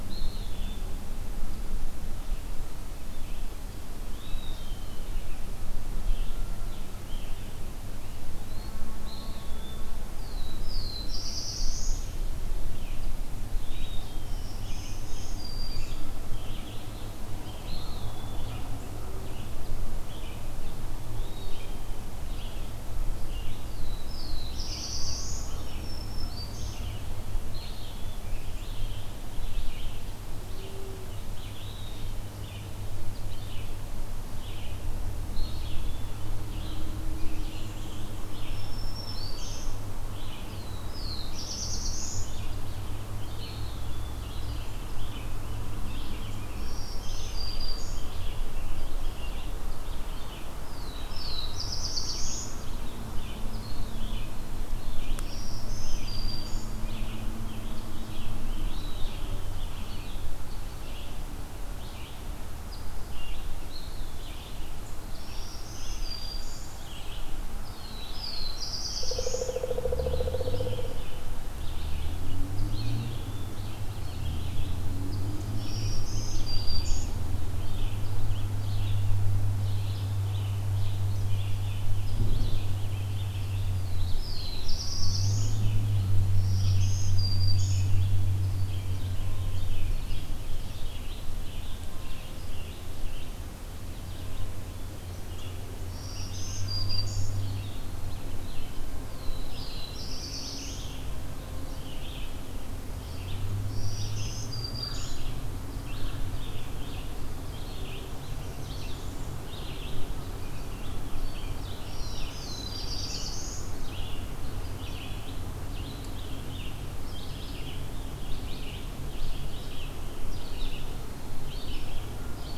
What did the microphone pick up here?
Eastern Wood-Pewee, Red-eyed Vireo, Black-throated Blue Warbler, Black-throated Green Warbler, Scarlet Tanager, Pileated Woodpecker